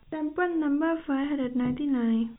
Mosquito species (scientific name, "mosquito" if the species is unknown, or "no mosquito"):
no mosquito